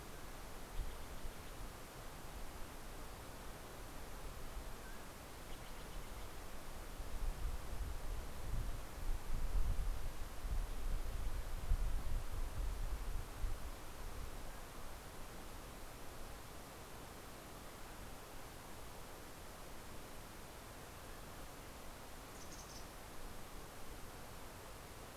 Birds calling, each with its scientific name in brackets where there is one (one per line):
Steller's Jay (Cyanocitta stelleri)
Mountain Chickadee (Poecile gambeli)
Mountain Quail (Oreortyx pictus)